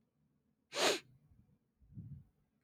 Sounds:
Sniff